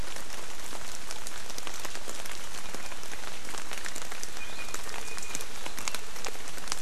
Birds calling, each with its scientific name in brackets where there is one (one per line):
Iiwi (Drepanis coccinea)